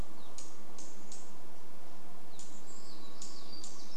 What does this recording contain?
Evening Grosbeak call, unidentified bird chip note